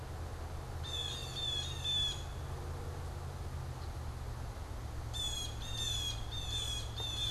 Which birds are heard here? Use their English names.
Blue Jay